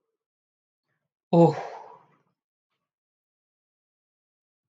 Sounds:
Sigh